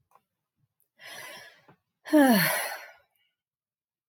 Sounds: Sigh